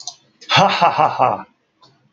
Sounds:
Laughter